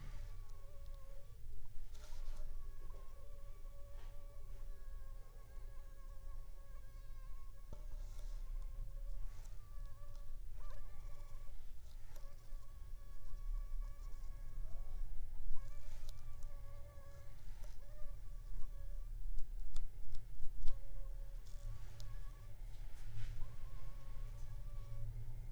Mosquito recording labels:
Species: Anopheles funestus s.s.; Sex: female; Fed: unfed; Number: one; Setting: cup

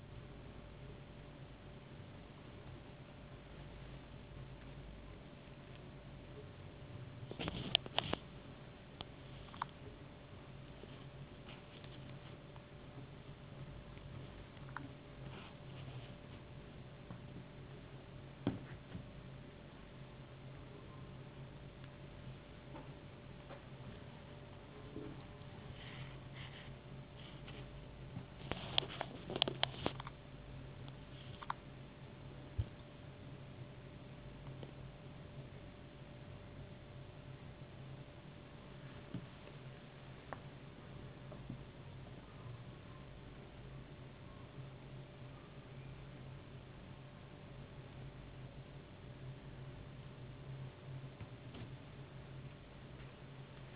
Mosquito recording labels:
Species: no mosquito; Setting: insect culture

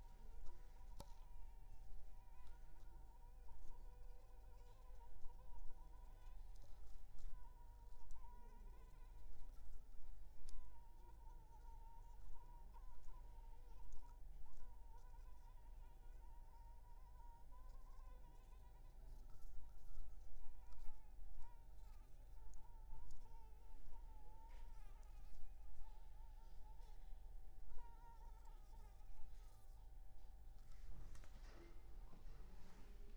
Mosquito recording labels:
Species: Anopheles funestus s.s.; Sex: female; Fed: unfed; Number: one; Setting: cup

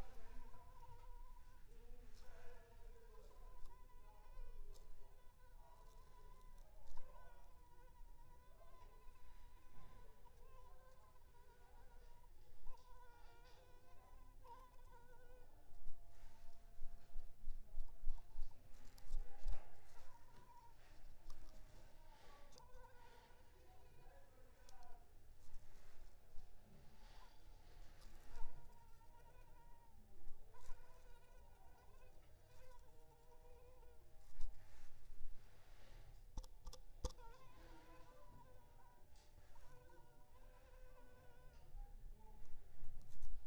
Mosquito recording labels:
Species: Anopheles arabiensis; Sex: female; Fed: unfed; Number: one; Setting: cup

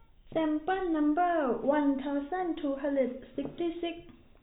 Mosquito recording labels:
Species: no mosquito; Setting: cup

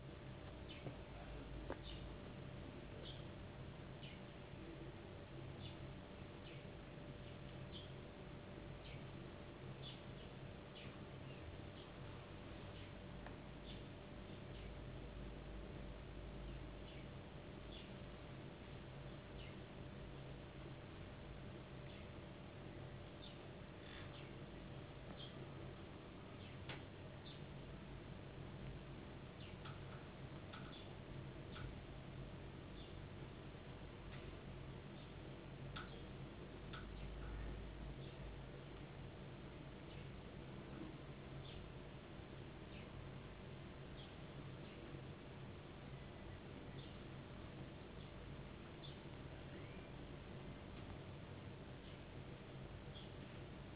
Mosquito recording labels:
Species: no mosquito; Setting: insect culture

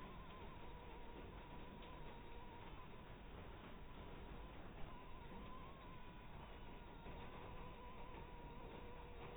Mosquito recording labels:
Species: Anopheles harrisoni; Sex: female; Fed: blood-fed; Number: one; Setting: cup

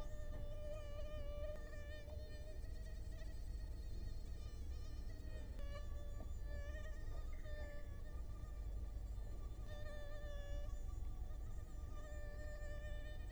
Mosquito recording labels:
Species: Culex quinquefasciatus; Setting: cup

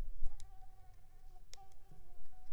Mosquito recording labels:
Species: Anopheles coustani; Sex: female; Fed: unfed; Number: one; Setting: cup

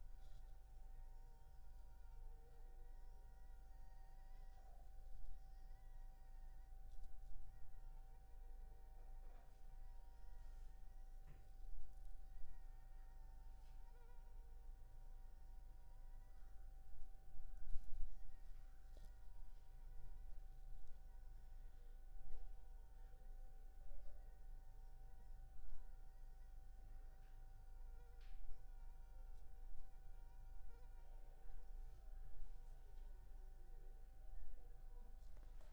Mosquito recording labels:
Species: Anopheles funestus s.s.; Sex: female; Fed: unfed; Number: one; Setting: cup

